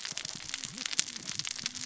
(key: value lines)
label: biophony, cascading saw
recorder: SoundTrap 600 or HydroMoth